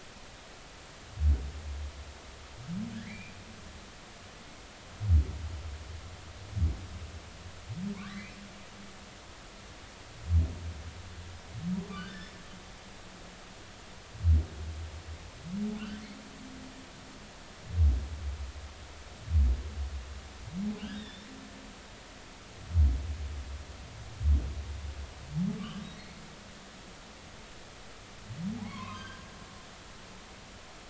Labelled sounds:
2.9	3.3	humpback whale, 1.5 to 2.6 kHz
8.0	8.3	humpback whale, 1.3 to 4.1 kHz
12.1	12.4	humpback whale, 5.2 to 5.6 kHz
20.9	21.3	humpback whale, 3.4 to 3.8 kHz
25.6	26.1	humpback whale, 1.1 to 3.9 kHz
28.6	29.2	humpback whale, 0.93 to 3.3 kHz

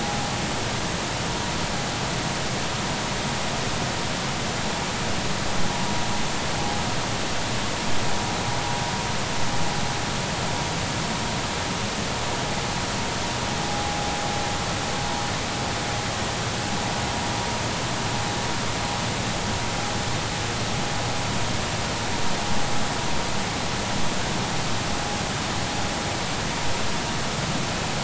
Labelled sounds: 13.6	14.0	vessel noise, 0.80 to 0.86 kHz

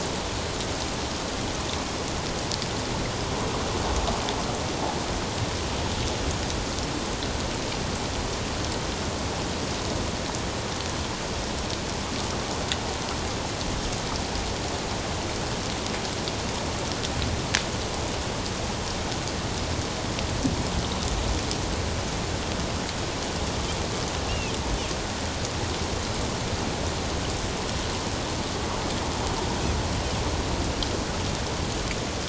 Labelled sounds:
24.3	24.5	Pacific white-sided dolphin, 2.4 to 2.9 kHz

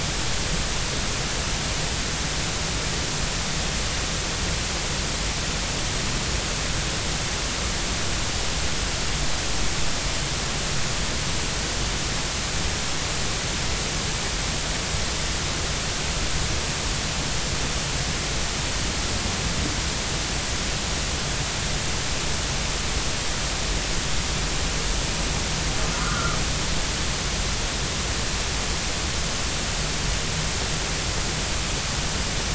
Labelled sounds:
26.0	26.4	humpback whale, 1.1 to 1.5 kHz

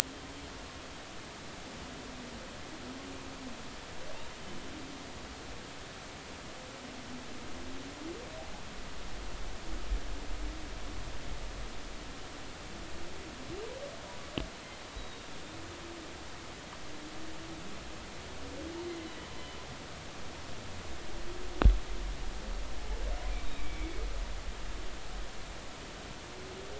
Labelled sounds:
14.9	15.3	humpback whale, 3.6 to 3.9 kHz
23.6	23.9	humpback whale, 2.1 to 2.4 kHz

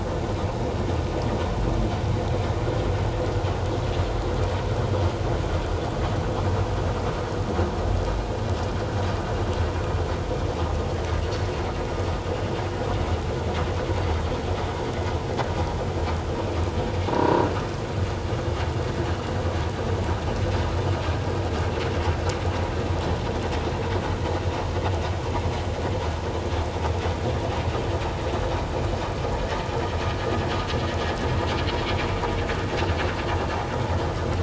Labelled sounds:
17.1	17.4	croaking sound likely from a nearby submerged object, 0.88 to 1.1 kHz

